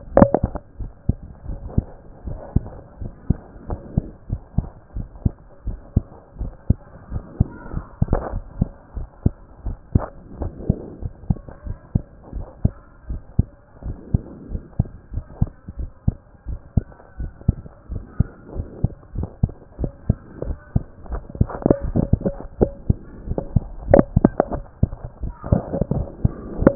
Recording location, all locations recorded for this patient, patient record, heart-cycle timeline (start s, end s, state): pulmonary valve (PV)
aortic valve (AV)+pulmonary valve (PV)+tricuspid valve (TV)+mitral valve (MV)
#Age: Child
#Sex: Male
#Height: 140.0 cm
#Weight: 33.2 kg
#Pregnancy status: False
#Murmur: Absent
#Murmur locations: nan
#Most audible location: nan
#Systolic murmur timing: nan
#Systolic murmur shape: nan
#Systolic murmur grading: nan
#Systolic murmur pitch: nan
#Systolic murmur quality: nan
#Diastolic murmur timing: nan
#Diastolic murmur shape: nan
#Diastolic murmur grading: nan
#Diastolic murmur pitch: nan
#Diastolic murmur quality: nan
#Outcome: Normal
#Campaign: 2014 screening campaign
0.00	0.68	unannotated
0.68	0.78	unannotated
0.78	0.89	S1
0.89	1.08	systole
1.08	1.15	S2
1.15	1.48	diastole
1.48	1.58	S1
1.58	1.76	systole
1.76	1.83	S2
1.83	2.26	diastole
2.26	2.38	S1
2.38	2.54	systole
2.54	2.62	S2
2.62	3.00	diastole
3.00	3.12	S1
3.12	3.28	systole
3.28	3.37	S2
3.37	3.68	diastole
3.68	3.80	S1
3.80	3.96	systole
3.96	4.03	S2
4.03	4.29	diastole
4.29	4.39	S1
4.39	4.56	systole
4.56	4.66	S2
4.66	4.95	diastole
4.95	5.05	S1
5.05	5.24	systole
5.24	5.33	S2
5.33	5.65	diastole
5.65	5.76	S1
5.76	5.95	systole
5.95	6.02	S2
6.02	6.39	diastole
6.39	6.50	S1
6.50	6.68	systole
6.68	6.76	S2
6.76	7.12	diastole
7.12	7.22	S1
7.22	7.38	systole
7.38	7.46	S2
7.46	7.73	diastole
7.73	7.83	S1
7.83	8.01	systole
8.01	8.07	S2
8.07	8.32	diastole
8.32	8.42	S1
8.42	8.58	systole
8.58	8.67	S2
8.67	8.95	diastole
8.95	9.06	S1
9.06	9.24	systole
9.24	9.32	S2
9.32	9.64	diastole
9.64	9.75	S1
9.75	9.93	systole
9.93	10.01	S2
10.01	10.40	diastole
10.40	10.50	S1
10.50	10.68	systole
10.68	10.76	S2
10.76	11.02	diastole
11.02	11.12	S1
11.12	11.28	systole
11.28	11.35	S2
11.35	11.66	diastole
11.66	11.76	S1
11.76	11.94	systole
11.94	12.02	S2
12.02	12.34	diastole
12.34	12.46	S1
12.46	12.63	systole
12.63	12.70	S2
12.70	13.08	diastole
13.08	13.19	S1
13.19	13.38	systole
13.38	13.45	S2
13.45	13.84	diastole
13.84	13.95	S1
13.95	14.12	systole
14.12	14.20	S2
14.20	14.50	diastole
14.50	14.62	S1
14.62	14.78	systole
14.78	14.86	S2
14.86	15.14	diastole
15.14	15.24	S1
15.24	15.40	systole
15.40	15.49	S2
15.49	15.78	diastole
15.78	15.89	S1
15.89	16.06	systole
16.06	16.14	S2
16.14	16.46	diastole
16.46	16.58	S1
16.58	16.76	systole
16.76	16.83	S2
16.83	17.18	diastole
17.18	17.29	S1
17.29	17.47	systole
17.47	17.55	S2
17.55	17.89	diastole
17.89	18.01	S1
18.01	18.18	systole
18.18	18.27	S2
18.27	18.55	diastole
18.55	18.65	S1
18.65	18.82	systole
18.82	18.89	S2
18.89	19.14	diastole
19.14	19.26	S1
19.26	19.42	systole
19.42	19.49	S2
19.49	19.79	diastole
19.79	19.91	S1
19.91	20.08	systole
20.08	20.15	S2
20.15	20.46	diastole
20.46	20.57	S1
20.57	20.74	systole
20.74	20.83	S2
20.83	26.75	unannotated